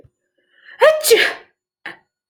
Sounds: Sneeze